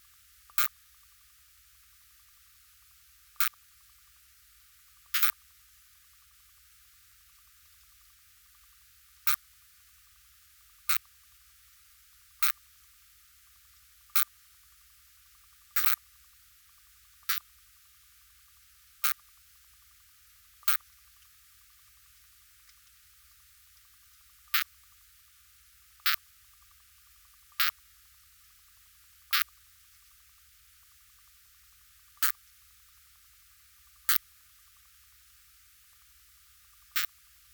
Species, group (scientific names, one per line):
Poecilimon zimmeri
Orthoptera